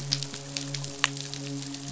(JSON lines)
{"label": "biophony, midshipman", "recorder": "SoundTrap 500"}